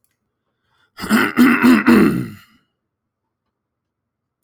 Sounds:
Throat clearing